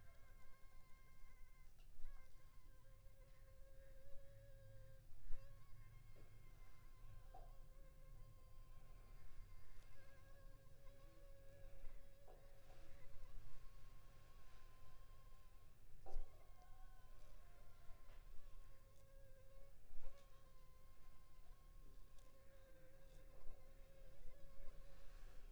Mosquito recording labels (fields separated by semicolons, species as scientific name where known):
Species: Anopheles funestus s.s.; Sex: female; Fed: unfed; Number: one; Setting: cup